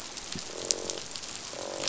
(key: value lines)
label: biophony, croak
recorder: SoundTrap 500